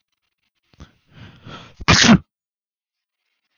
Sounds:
Sneeze